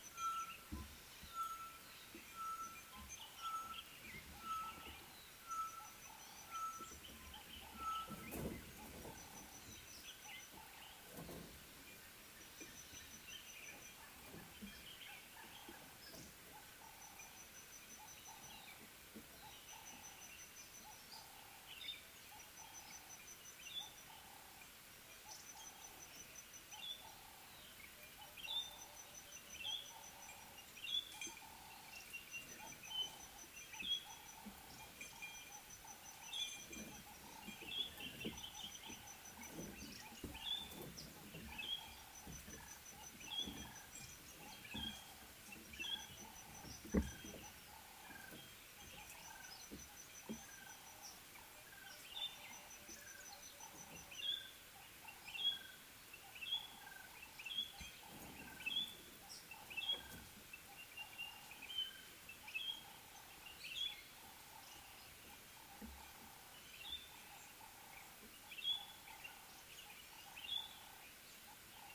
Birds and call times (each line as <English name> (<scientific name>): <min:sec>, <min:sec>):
Tropical Boubou (Laniarius major): 0:01.5
Ring-necked Dove (Streptopelia capicola): 0:06.3, 0:19.9, 0:49.2, 1:10.7
White-browed Robin-Chat (Cossypha heuglini): 0:26.9, 0:43.4, 0:57.5
Red-faced Crombec (Sylvietta whytii): 0:32.0